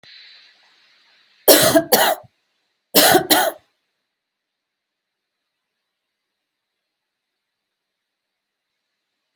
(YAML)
expert_labels:
- quality: good
  cough_type: dry
  dyspnea: false
  wheezing: false
  stridor: false
  choking: false
  congestion: false
  nothing: true
  diagnosis: upper respiratory tract infection
  severity: mild
gender: female
respiratory_condition: true
fever_muscle_pain: false
status: symptomatic